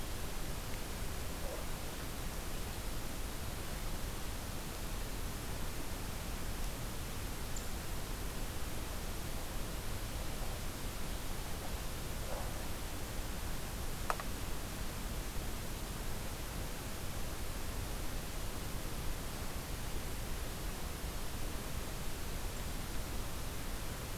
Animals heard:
forest ambience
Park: Hubbard Brook Experimental Forest